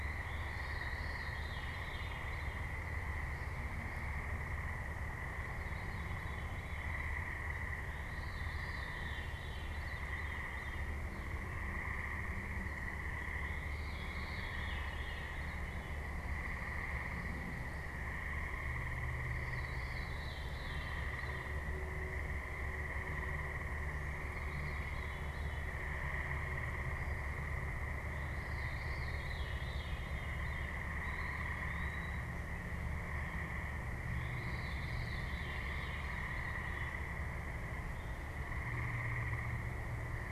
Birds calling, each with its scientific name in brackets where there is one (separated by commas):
Veery (Catharus fuscescens), Eastern Wood-Pewee (Contopus virens)